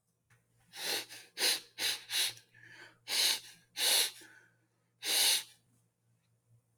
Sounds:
Sniff